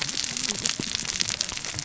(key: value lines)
label: biophony, cascading saw
recorder: SoundTrap 600 or HydroMoth